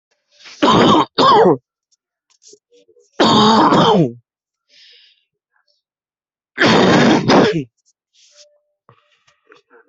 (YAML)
expert_labels:
- quality: ok
  cough_type: dry
  dyspnea: false
  wheezing: false
  stridor: false
  choking: false
  congestion: false
  nothing: true
  diagnosis: COVID-19
  severity: mild
age: 25
gender: male
respiratory_condition: true
fever_muscle_pain: true
status: COVID-19